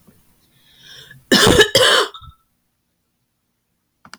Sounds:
Cough